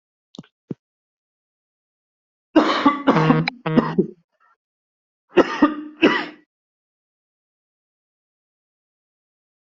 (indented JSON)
{
  "expert_labels": [
    {
      "quality": "good",
      "cough_type": "unknown",
      "dyspnea": false,
      "wheezing": false,
      "stridor": false,
      "choking": false,
      "congestion": false,
      "nothing": true,
      "diagnosis": "lower respiratory tract infection",
      "severity": "unknown"
    }
  ],
  "age": 32,
  "gender": "male",
  "respiratory_condition": false,
  "fever_muscle_pain": false,
  "status": "COVID-19"
}